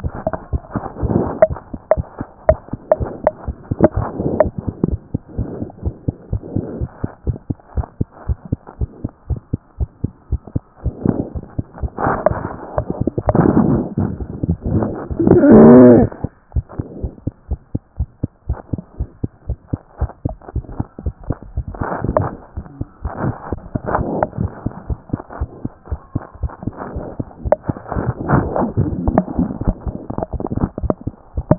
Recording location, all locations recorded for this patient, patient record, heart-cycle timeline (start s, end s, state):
mitral valve (MV)
aortic valve (AV)+mitral valve (MV)
#Age: Child
#Sex: Female
#Height: 80.0 cm
#Weight: 9.1 kg
#Pregnancy status: False
#Murmur: Absent
#Murmur locations: nan
#Most audible location: nan
#Systolic murmur timing: nan
#Systolic murmur shape: nan
#Systolic murmur grading: nan
#Systolic murmur pitch: nan
#Systolic murmur quality: nan
#Diastolic murmur timing: nan
#Diastolic murmur shape: nan
#Diastolic murmur grading: nan
#Diastolic murmur pitch: nan
#Diastolic murmur quality: nan
#Outcome: Abnormal
#Campaign: 2014 screening campaign
0.00	16.28	unannotated
16.28	16.54	diastole
16.54	16.66	S1
16.66	16.78	systole
16.78	16.86	S2
16.86	17.02	diastole
17.02	17.12	S1
17.12	17.24	systole
17.24	17.34	S2
17.34	17.50	diastole
17.50	17.60	S1
17.60	17.72	systole
17.72	17.82	S2
17.82	17.98	diastole
17.98	18.10	S1
18.10	18.22	systole
18.22	18.30	S2
18.30	18.48	diastole
18.48	18.58	S1
18.58	18.72	systole
18.72	18.82	S2
18.82	18.98	diastole
18.98	19.10	S1
19.10	19.22	systole
19.22	19.32	S2
19.32	19.48	diastole
19.48	19.58	S1
19.58	19.72	systole
19.72	19.80	S2
19.80	20.00	diastole
20.00	20.12	S1
20.12	20.24	systole
20.24	20.36	S2
20.36	20.54	diastole
20.54	20.66	S1
20.66	20.78	systole
20.78	20.88	S2
20.88	21.06	diastole
21.06	21.16	S1
21.16	21.28	systole
21.28	21.38	S2
21.38	21.58	diastole
21.58	21.66	S1
21.66	31.58	unannotated